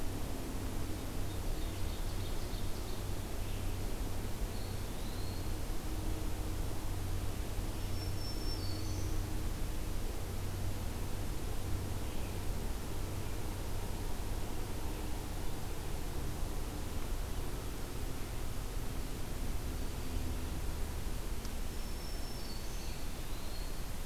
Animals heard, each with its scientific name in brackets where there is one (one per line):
Black-throated Green Warbler (Setophaga virens)
Eastern Wood-Pewee (Contopus virens)
Ovenbird (Seiurus aurocapilla)